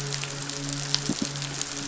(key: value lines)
label: biophony, midshipman
recorder: SoundTrap 500